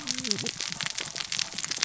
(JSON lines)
{"label": "biophony, cascading saw", "recorder": "SoundTrap 600 or HydroMoth"}